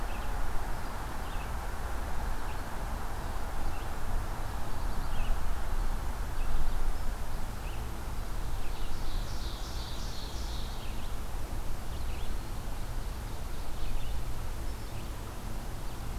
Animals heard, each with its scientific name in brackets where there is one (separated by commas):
Red-eyed Vireo (Vireo olivaceus), Ovenbird (Seiurus aurocapilla)